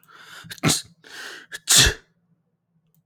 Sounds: Sneeze